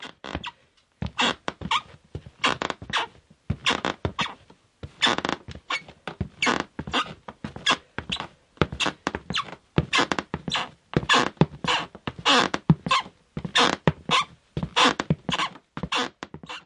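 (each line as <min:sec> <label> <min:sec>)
0:00.0 A person is walking on a squeaking floor, producing a repeating squeaking noise. 0:16.6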